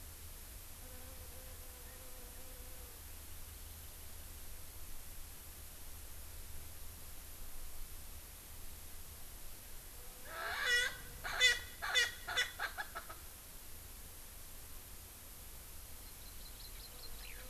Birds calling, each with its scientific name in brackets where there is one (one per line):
Eurasian Skylark (Alauda arvensis)
Erckel's Francolin (Pternistis erckelii)
Hawaii Amakihi (Chlorodrepanis virens)